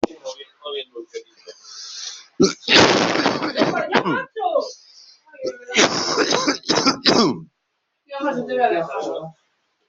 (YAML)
expert_labels:
- quality: good
  cough_type: wet
  dyspnea: false
  wheezing: false
  stridor: false
  choking: false
  congestion: false
  nothing: true
  diagnosis: lower respiratory tract infection
  severity: mild
age: 47
gender: male
respiratory_condition: true
fever_muscle_pain: false
status: COVID-19